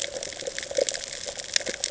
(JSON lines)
{"label": "ambient", "recorder": "HydroMoth"}